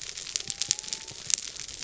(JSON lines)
{"label": "biophony", "recorder": "SoundTrap 300"}